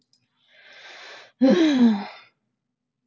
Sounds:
Sigh